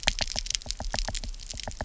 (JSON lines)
{"label": "biophony, knock", "recorder": "SoundTrap 300"}